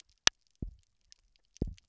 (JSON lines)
{"label": "biophony, double pulse", "recorder": "SoundTrap 300"}